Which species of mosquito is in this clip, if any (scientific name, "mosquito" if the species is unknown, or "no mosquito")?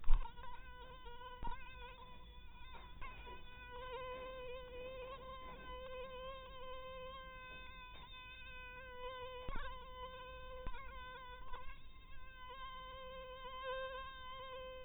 mosquito